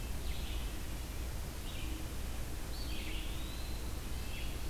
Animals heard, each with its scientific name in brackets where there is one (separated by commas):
Red-eyed Vireo (Vireo olivaceus), Eastern Wood-Pewee (Contopus virens), Red-breasted Nuthatch (Sitta canadensis)